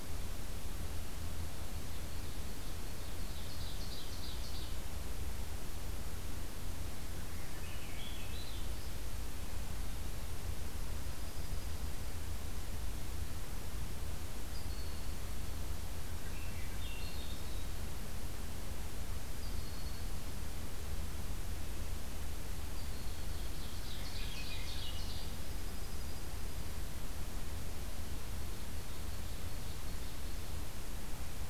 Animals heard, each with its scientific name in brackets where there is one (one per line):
Swainson's Thrush (Catharus ustulatus)
Ovenbird (Seiurus aurocapilla)
Dark-eyed Junco (Junco hyemalis)
Broad-winged Hawk (Buteo platypterus)